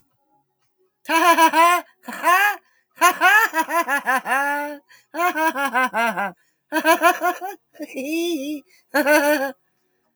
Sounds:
Laughter